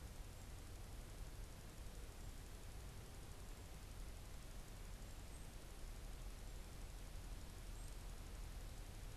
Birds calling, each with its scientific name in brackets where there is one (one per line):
Black-capped Chickadee (Poecile atricapillus)